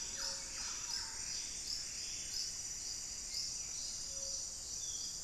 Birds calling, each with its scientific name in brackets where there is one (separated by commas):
Hauxwell's Thrush (Turdus hauxwelli), Buff-breasted Wren (Cantorchilus leucotis), Buff-throated Saltator (Saltator maximus), Thrush-like Wren (Campylorhynchus turdinus)